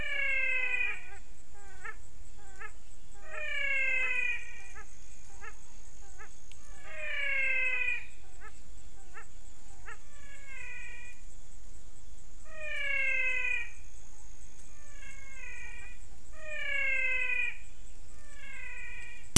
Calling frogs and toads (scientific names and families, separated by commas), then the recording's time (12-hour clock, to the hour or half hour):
Phyllomedusa sauvagii (Hylidae)
~5pm